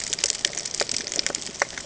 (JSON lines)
{"label": "ambient", "recorder": "HydroMoth"}